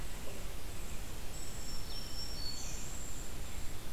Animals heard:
Black-throated Green Warbler (Setophaga virens)
Cedar Waxwing (Bombycilla cedrorum)
Red-eyed Vireo (Vireo olivaceus)

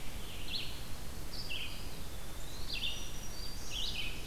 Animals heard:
Eastern Wood-Pewee (Contopus virens)
Black-throated Green Warbler (Setophaga virens)
Red-eyed Vireo (Vireo olivaceus)
Scarlet Tanager (Piranga olivacea)

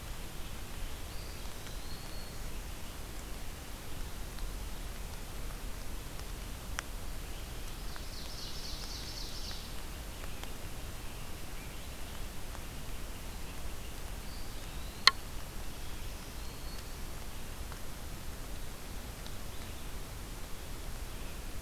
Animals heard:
Eastern Wood-Pewee (Contopus virens)
Ovenbird (Seiurus aurocapilla)
Black-throated Green Warbler (Setophaga virens)
Red-eyed Vireo (Vireo olivaceus)

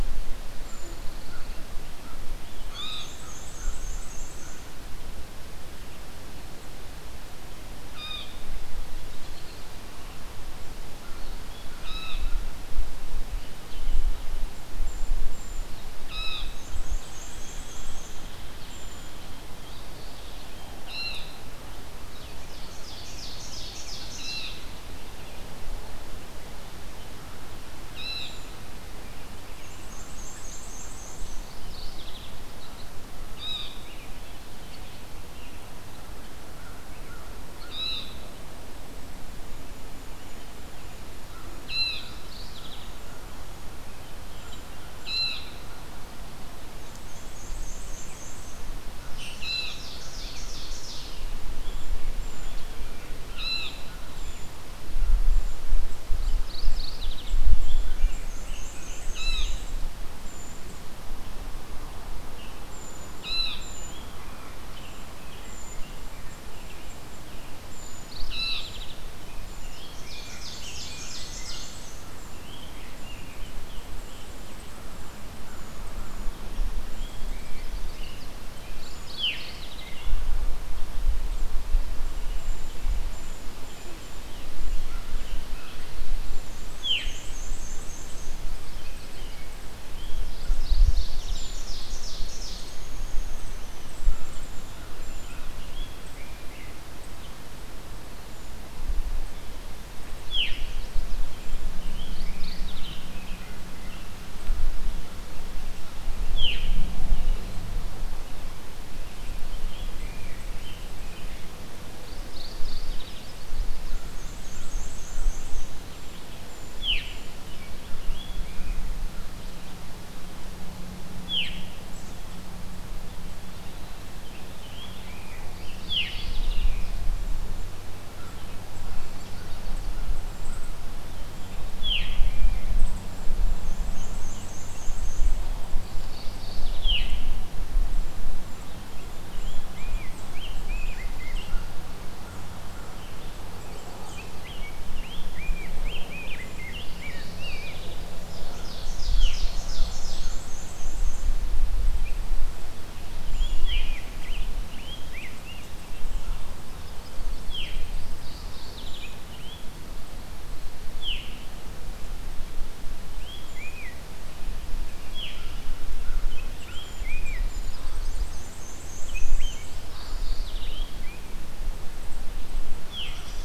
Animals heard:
American Robin (Turdus migratorius)
Scarlet Tanager (Piranga olivacea)
Rose-breasted Grosbeak (Pheucticus ludovicianus)
Blue Jay (Cyanocitta cristata)
Brown Creeper (Certhia americana)
American Crow (Corvus brachyrhynchos)
Ovenbird (Seiurus aurocapilla)
Veery (Catharus fuscescens)
Hairy Woodpecker (Dryobates villosus)
Black-and-white Warbler (Mniotilta varia)
Mourning Warbler (Geothlypis philadelphia)
Red Crossbill (Loxia curvirostra)
Black-capped Chickadee (Poecile atricapillus)
Pine Warbler (Setophaga pinus)
Chestnut-sided Warbler (Setophaga pensylvanica)

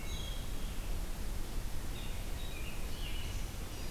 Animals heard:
Red-eyed Vireo (Vireo olivaceus)

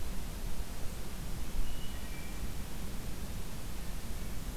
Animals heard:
Wood Thrush (Hylocichla mustelina)

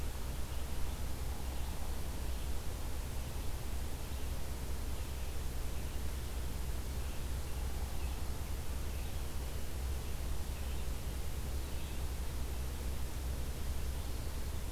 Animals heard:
Hairy Woodpecker (Dryobates villosus)
Red-eyed Vireo (Vireo olivaceus)

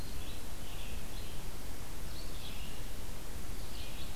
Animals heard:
Red-eyed Vireo (Vireo olivaceus)

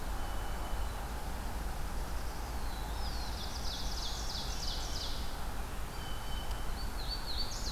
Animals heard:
Hooded Warbler (Setophaga citrina)
Ovenbird (Seiurus aurocapilla)
Black-throated Blue Warbler (Setophaga caerulescens)
Blue Jay (Cyanocitta cristata)

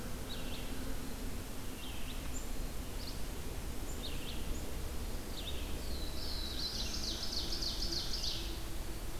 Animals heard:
American Crow (Corvus brachyrhynchos)
Red-eyed Vireo (Vireo olivaceus)
Black-throated Blue Warbler (Setophaga caerulescens)
Ovenbird (Seiurus aurocapilla)

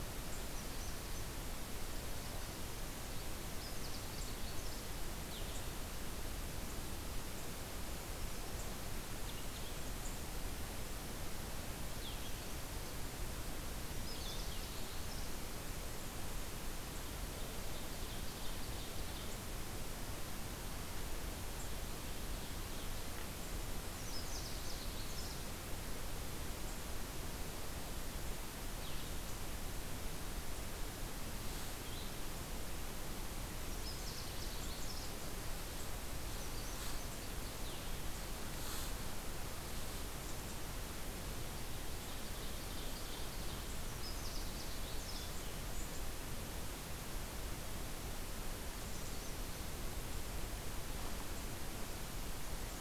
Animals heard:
Ovenbird (Seiurus aurocapilla)
Blue-headed Vireo (Vireo solitarius)
Canada Warbler (Cardellina canadensis)

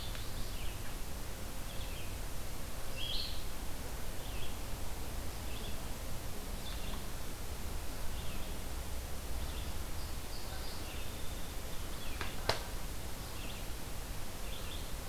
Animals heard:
Song Sparrow (Melospiza melodia)
Blue-headed Vireo (Vireo solitarius)
Red-eyed Vireo (Vireo olivaceus)

